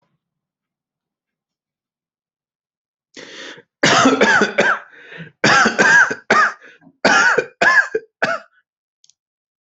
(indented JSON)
{
  "expert_labels": [
    {
      "quality": "good",
      "cough_type": "dry",
      "dyspnea": false,
      "wheezing": false,
      "stridor": false,
      "choking": false,
      "congestion": false,
      "nothing": true,
      "diagnosis": "upper respiratory tract infection",
      "severity": "mild"
    }
  ],
  "age": 27,
  "gender": "female",
  "respiratory_condition": false,
  "fever_muscle_pain": false,
  "status": "healthy"
}